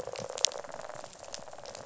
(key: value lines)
label: biophony, rattle
recorder: SoundTrap 500